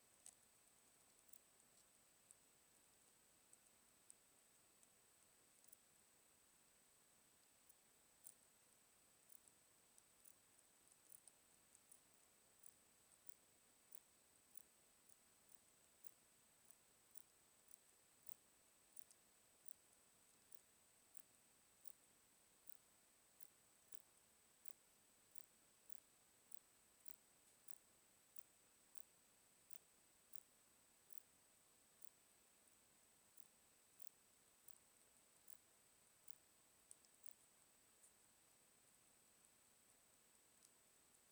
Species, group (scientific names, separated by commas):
Poecilimon ikariensis, Orthoptera